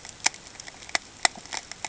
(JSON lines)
{"label": "ambient", "recorder": "HydroMoth"}